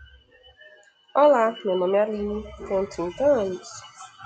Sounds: Sigh